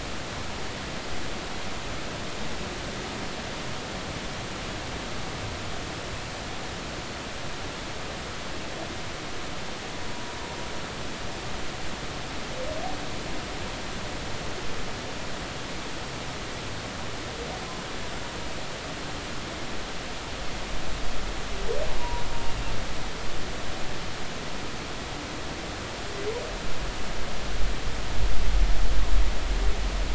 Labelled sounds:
22.0	22.2	humpback whale, 0.90 to 1.0 kHz

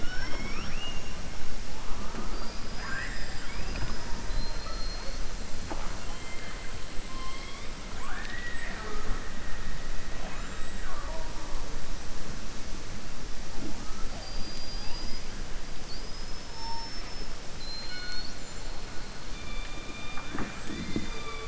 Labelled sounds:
0.0	0.8	killer whale, southern resident, 4.5 to 5.7 kHz
4.2	5.2	killer whale, southern resident, 4.0 to 5.1 kHz
6.0	6.7	killer whale, southern resident, 1.7 to 3.2 kHz
17.5	18.4	killer whale, southern resident, 1.5 to 5.2 kHz

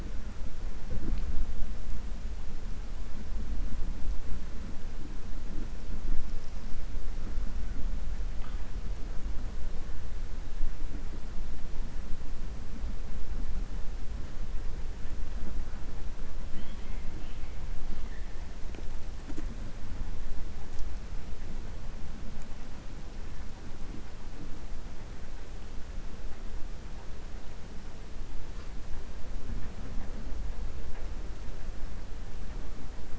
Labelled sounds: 16.4	17.0	killer whale, 1.9 to 3.4 kHz

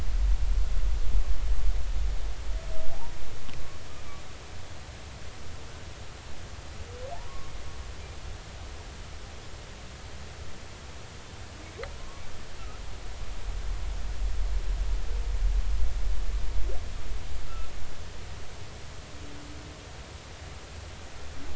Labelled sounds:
12.0	12.3	humpback whale, 0.99 to 1.2 kHz
17.5	17.7	humpback whale, 1.2 to 1.4 kHz

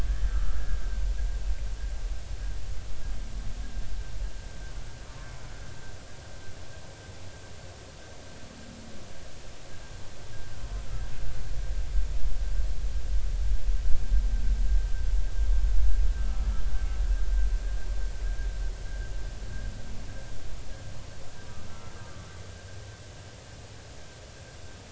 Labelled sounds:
0.1	0.8	humpback whale, 1.5 to 1.8 kHz
1.3	1.6	humpback whale, 1.2 to 1.5 kHz
21.7	22.3	humpback whale, 1.1 to 1.4 kHz

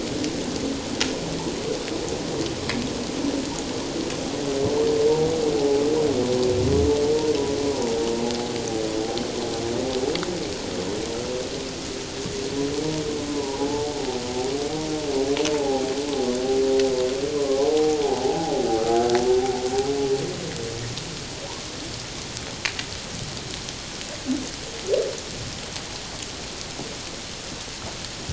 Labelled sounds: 5.6	5.8	humpback whale, 0.78 to 0.88 kHz
13.3	13.9	humpback whale, 0.78 to 1.0 kHz
15.5	15.8	humpback whale, 0.78 to 0.97 kHz
17.4	18.5	humpback whale, 0.78 to 1.2 kHz

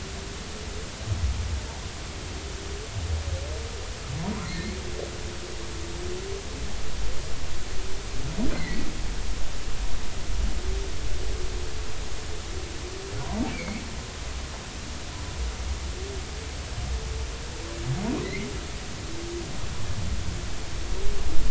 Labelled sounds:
4.4	4.8	humpback whale, 1.8 to 2.3 kHz
8.5	8.9	humpback whale, 1.9 to 2.2 kHz
13.5	13.8	humpback whale, 2.1 to 2.7 kHz
18.2	18.5	humpback whale, 1.9 to 2.5 kHz

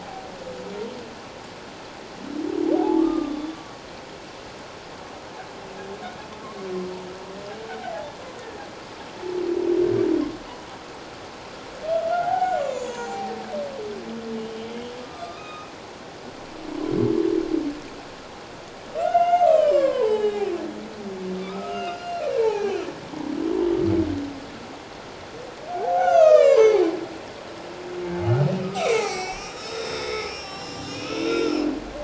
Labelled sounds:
2.7	3.6	humpback whale, 0.78 to 3.6 kHz
7.7	8.1	humpback whale, 0.78 to 0.94 kHz
12.1	13.3	humpback whale, 0.78 to 7.9 kHz
14.4	15.7	humpback whale, 1.2 to 3.8 kHz
19.0	20.4	humpback whale, 0.81 to 7.9 kHz
21.4	22.8	humpback whale, 0.78 to 5.0 kHz
25.7	26.9	humpback whale, 0.78 to 7.2 kHz
28.6	31.6	humpback whale, 1.1 to 8.0 kHz

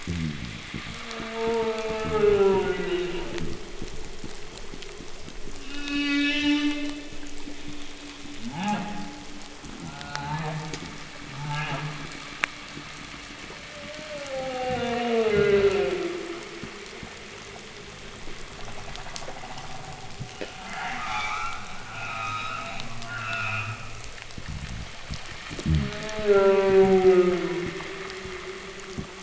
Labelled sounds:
0.0	0.7	fish, groan, 0 to 0.48 kHz
0.5	7.8	fish, knock and groan, 0 to 0.54 kHz
0.7	3.5	humpback whale, descending moan, 0.11 to 4.0 kHz
5.5	7.2	humpback whale, moan, 0.16 to 7.1 kHz
8.3	9.3	humpback whale, grunt, 0.06 to 3.8 kHz
9.5	17.2	fish, groan and knock, 0 to 0.44 kHz
9.7	10.8	humpback whale, grunt, 0.06 to 3.2 kHz
11.1	12.2	humpback whale, grunt, 0.05 to 3.0 kHz
13.5	16.6	humpback whale, descending moan, 0.12 to 4.3 kHz
18.3	20.1	humpback whale, creak, 0.47 to 1.2 kHz
20.5	24.3	humpback whale, 0.07 to 7.4 kHz
24.2	29.2	fish, groan and knock, 0.02 to 0.48 kHz
25.6	27.8	humpback whale, descending moan, 0.06 to 3.3 kHz

